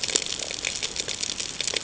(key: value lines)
label: ambient
recorder: HydroMoth